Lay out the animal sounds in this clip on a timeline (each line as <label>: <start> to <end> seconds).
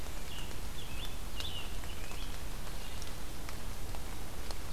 Red-eyed Vireo (Vireo olivaceus): 0.0 to 4.7 seconds
Scarlet Tanager (Piranga olivacea): 0.1 to 2.7 seconds